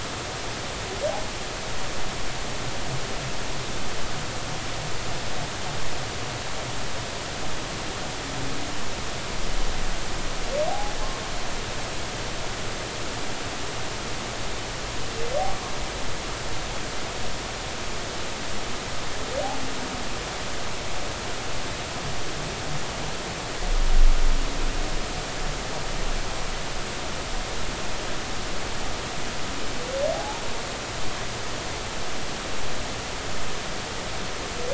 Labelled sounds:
10.7	10.9	humpback whale, 0.80 to 0.86 kHz
30.1	30.4	humpback whale, 0.80 to 0.96 kHz

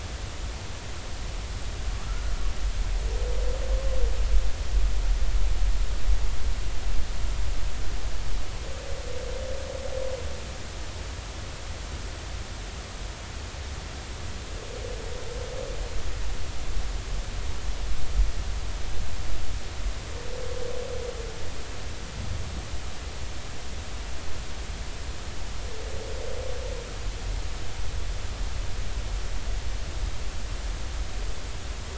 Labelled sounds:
2.0	2.3	humpback whale, 1.3 to 1.5 kHz

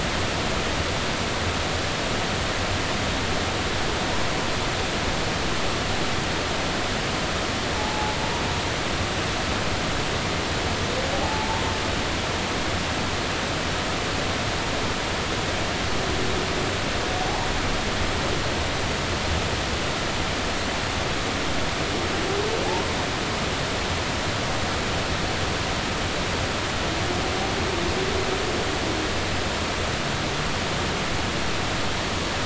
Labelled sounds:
7.8	8.2	humpback whale, 0.80 to 0.93 kHz
11.1	11.6	humpback whale, 0.80 to 0.96 kHz

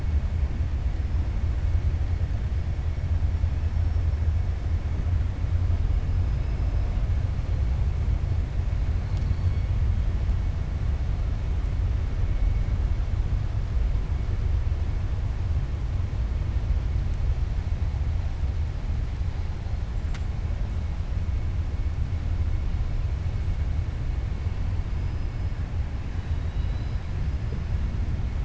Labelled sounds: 26.2	27.1	killer whale, 2.9 to 5.0 kHz

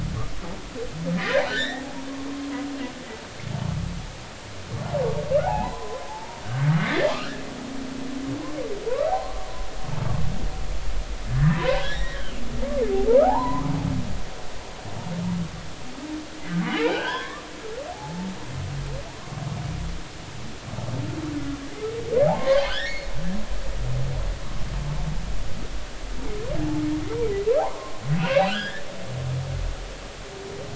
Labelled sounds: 1.1	1.8	humpback whale, 1.4 to 2.2 kHz
5.4	6.4	humpback whale, 0.80 to 1.1 kHz
8.9	9.5	humpback whale, 0.80 to 1.3 kHz
11.3	12.3	humpback whale, 0.90 to 5.7 kHz
13.2	13.7	humpback whale, 0.80 to 1.3 kHz
16.6	17.5	humpback whale, 0.93 to 3.5 kHz
17.9	18.3	humpback whale, 0.80 to 0.93 kHz
22.4	23.1	humpback whale, 1.0 to 4.5 kHz
27.6	28.9	humpback whale, 0.80 to 3.5 kHz

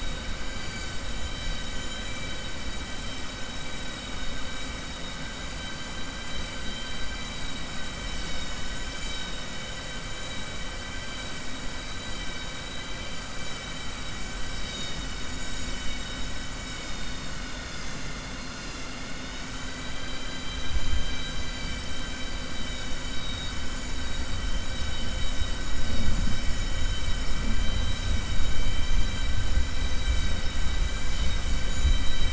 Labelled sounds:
1.8	2.2	vessel noise, 2.3 to 4.0 kHz
4.0	4.4	vessel noise, 3.0 to 5.3 kHz
6.6	7.3	vessel noise, 3.1 to 4.7 kHz

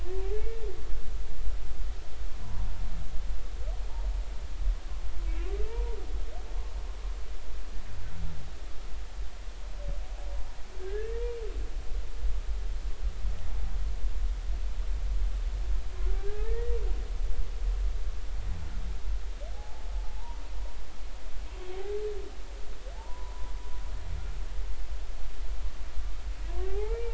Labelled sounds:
0.3	0.6	humpback whale, 2.1 to 2.3 kHz
5.3	6.0	humpback whale, 0.86 to 2.6 kHz
11.8	12.3	humpback whale, 1.5 to 2.0 kHz
16.2	16.8	humpback whale, 1.5 to 2.0 kHz
19.5	19.9	humpback whale, 0.80 to 0.93 kHz
23.0	23.3	humpback whale, 0.83 to 1.1 kHz
26.7	27.1	humpback whale, 0.80 to 2.4 kHz

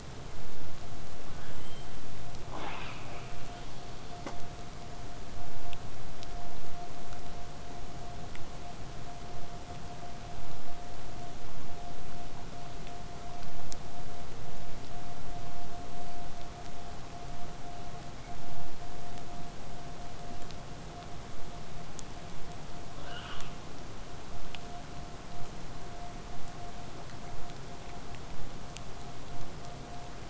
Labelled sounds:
1.2	2.1	killer whale, southern resident, J pod, call S44, 1.0 to 8.0 kHz
2.5	4.4	killer whale, southern resident, 0.19 to 6.9 kHz
23.0	23.6	killer whale, southern resident, 0.62 to 5.7 kHz
25.3	30.2	vessel noise, 0 to 8.0 kHz

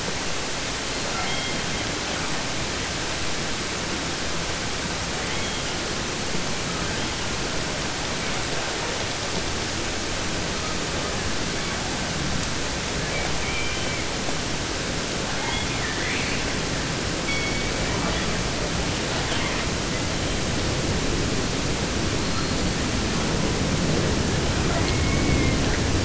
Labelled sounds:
0.8	2.4	killer whale, 0.26 to 7.5 kHz
5.1	6.0	killer whale, southern resident, J pod, call S44, 0.47 to 4.8 kHz
6.7	7.4	killer whale, 0.99 to 3.8 kHz
8.1	8.4	killer whale, 1.8 to 2.6 kHz
10.5	11.2	killer whale, 0.77 to 4.5 kHz
11.5	11.9	killer whale, 0.39 to 4.8 kHz
12.9	14.1	killer whale, 0.50 to 3.8 kHz
15.2	16.6	killer whale, 0.50 to 5.9 kHz
17.2	18.6	killer whale, 0.50 to 6.1 kHz
19.0	20.5	killer whale, 0.50 to 5.3 kHz
22.1	23.6	killer whale, 0.81 to 7.4 kHz
24.6	25.8	killer whale, southern resident, 0.36 to 5.3 kHz

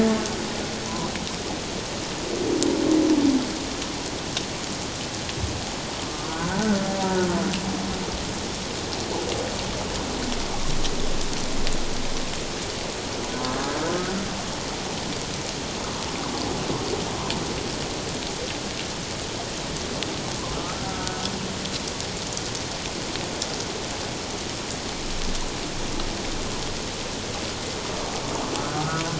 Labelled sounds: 0.9	1.1	humpback whale, 0.94 to 1.2 kHz
6.3	7.3	humpback whale, 0.88 to 1.6 kHz
20.6	21.3	humpback whale, 1.2 to 1.6 kHz
28.8	29.0	humpback whale, 1.2 to 1.5 kHz

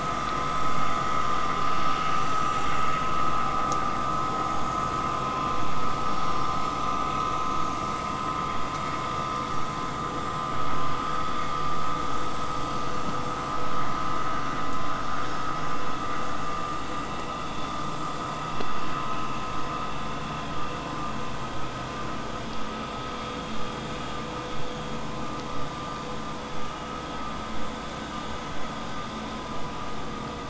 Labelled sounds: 25.5	30.4	vessel noise, 0 to 8.0 kHz

